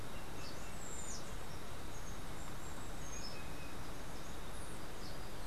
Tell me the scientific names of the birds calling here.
Cyanocorax yncas